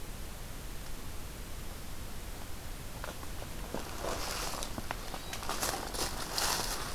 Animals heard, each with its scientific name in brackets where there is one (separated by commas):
Hermit Thrush (Catharus guttatus)